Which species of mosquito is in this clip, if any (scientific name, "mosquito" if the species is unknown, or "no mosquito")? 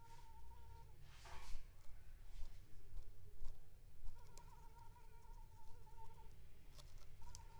Anopheles funestus s.l.